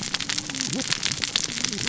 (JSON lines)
{"label": "biophony, cascading saw", "recorder": "SoundTrap 600 or HydroMoth"}